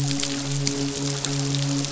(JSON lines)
{"label": "biophony, midshipman", "recorder": "SoundTrap 500"}